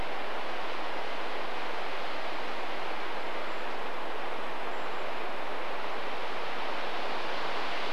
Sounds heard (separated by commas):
Golden-crowned Kinglet song